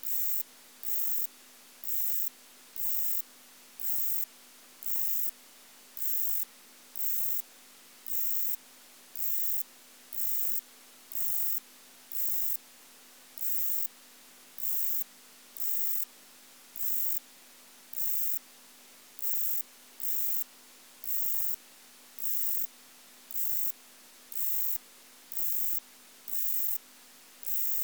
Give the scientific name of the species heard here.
Pseudosubria bispinosa